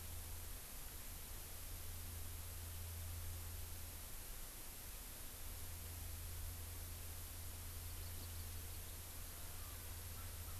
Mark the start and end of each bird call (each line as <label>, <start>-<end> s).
Hawaii Amakihi (Chlorodrepanis virens), 7.8-8.7 s